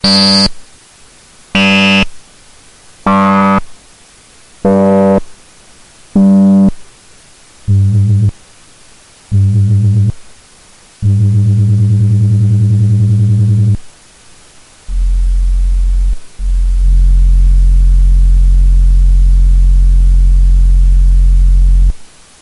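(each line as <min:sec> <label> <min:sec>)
0:00.0 A loud, high-pitched beeping sound. 0:00.7
0:01.4 A loud, high-pitched beeping sound. 0:02.3
0:02.9 A loud, high-pitched beeping sound. 0:03.7
0:04.5 A loud, high-pitched beeping sound. 0:05.4
0:06.1 A loud, deep electronic beeping sound. 0:06.9
0:07.6 A deep, beeping electronic sound. 0:08.4
0:09.2 A deep electric beep. 0:10.3
0:10.9 A continuous deep electric beeping sound. 0:14.0
0:14.7 A weak, continuous low-intensity beeping sound. 0:22.2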